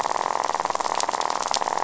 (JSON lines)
{"label": "biophony, rattle", "recorder": "SoundTrap 500"}